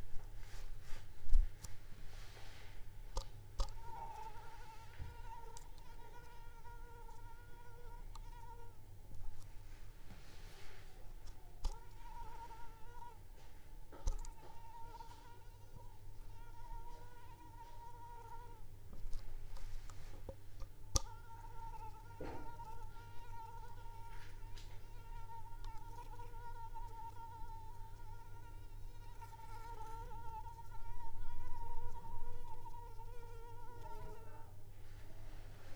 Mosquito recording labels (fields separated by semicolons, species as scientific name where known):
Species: Anopheles arabiensis; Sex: female; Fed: unfed; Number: one; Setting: cup